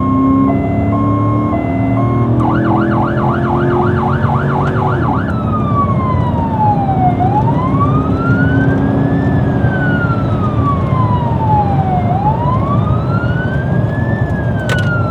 is the car engine the only thing making noise?
no